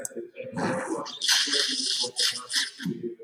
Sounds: Throat clearing